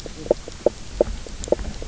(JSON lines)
{"label": "biophony, knock croak", "recorder": "SoundTrap 300"}